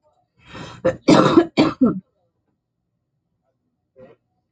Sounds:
Cough